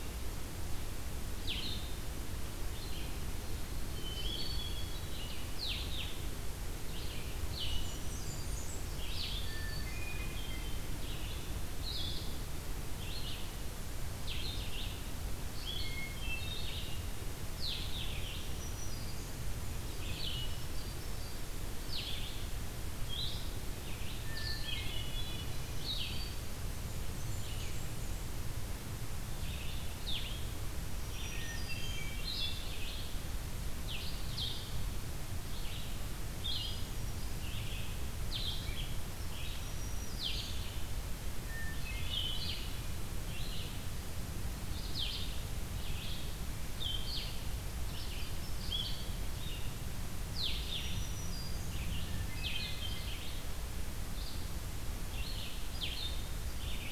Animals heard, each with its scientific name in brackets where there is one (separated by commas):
Blackburnian Warbler (Setophaga fusca), Red-eyed Vireo (Vireo olivaceus), Hermit Thrush (Catharus guttatus), Black-throated Green Warbler (Setophaga virens), Blue-headed Vireo (Vireo solitarius)